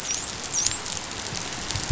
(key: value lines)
label: biophony, dolphin
recorder: SoundTrap 500